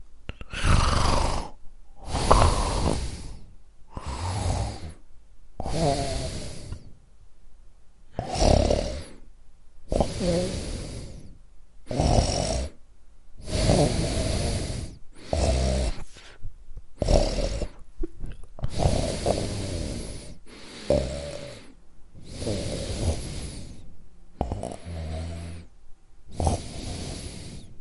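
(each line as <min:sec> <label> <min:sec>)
0:00.0 Someone is snoring steadily. 0:27.8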